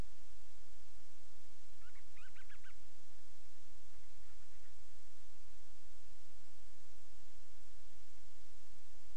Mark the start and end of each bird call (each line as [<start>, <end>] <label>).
[1.70, 2.80] Band-rumped Storm-Petrel (Hydrobates castro)